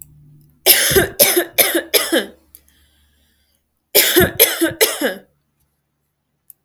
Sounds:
Cough